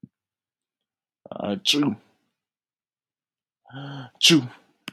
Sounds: Sneeze